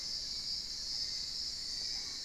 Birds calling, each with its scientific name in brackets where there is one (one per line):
Hauxwell's Thrush (Turdus hauxwelli)
Fasciated Antshrike (Cymbilaimus lineatus)
unidentified bird